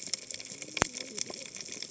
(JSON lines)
{"label": "biophony, cascading saw", "recorder": "HydroMoth"}